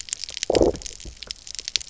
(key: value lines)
label: biophony, low growl
recorder: SoundTrap 300